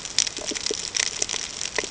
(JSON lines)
{"label": "ambient", "recorder": "HydroMoth"}